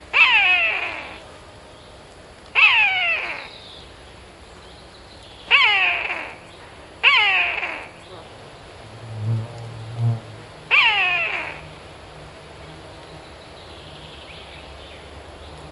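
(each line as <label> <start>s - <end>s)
Birds chirp softly. 0.0s - 15.7s
A cat meows sharply, fading out. 0.1s - 1.2s
A cat meows sharply, fading out. 2.5s - 3.6s
A cat meows sharply, fading out. 5.5s - 6.4s
A cat meows sharply, fading out. 7.0s - 8.0s
A duck quacks. 8.1s - 8.3s
A fly buzzes faintly, fading in and out. 8.9s - 10.3s
A cat meows sharply, fading out. 10.7s - 11.7s
A bird tweets slowly in the background. 14.4s - 15.2s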